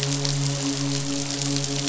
{"label": "biophony, midshipman", "recorder": "SoundTrap 500"}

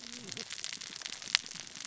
{"label": "biophony, cascading saw", "recorder": "SoundTrap 600 or HydroMoth"}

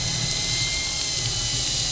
{"label": "anthrophony, boat engine", "recorder": "SoundTrap 500"}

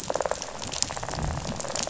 {"label": "biophony, rattle", "recorder": "SoundTrap 500"}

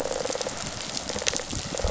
{"label": "biophony, rattle response", "recorder": "SoundTrap 500"}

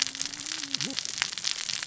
{"label": "biophony, cascading saw", "recorder": "SoundTrap 600 or HydroMoth"}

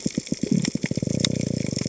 {"label": "biophony", "recorder": "HydroMoth"}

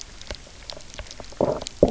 {"label": "biophony, low growl", "recorder": "SoundTrap 300"}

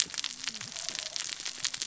{"label": "biophony, cascading saw", "recorder": "SoundTrap 600 or HydroMoth"}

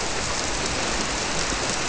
{"label": "biophony", "recorder": "SoundTrap 300"}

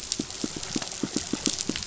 {"label": "biophony, pulse", "recorder": "SoundTrap 500"}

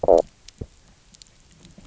{"label": "biophony, stridulation", "recorder": "SoundTrap 300"}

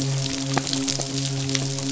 {"label": "biophony, midshipman", "recorder": "SoundTrap 500"}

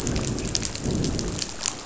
{"label": "biophony, growl", "recorder": "SoundTrap 500"}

